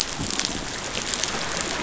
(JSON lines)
{"label": "biophony", "recorder": "SoundTrap 500"}